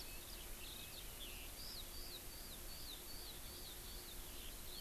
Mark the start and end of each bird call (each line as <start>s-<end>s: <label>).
0.0s-4.8s: Eurasian Skylark (Alauda arvensis)